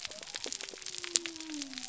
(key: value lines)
label: biophony
recorder: SoundTrap 300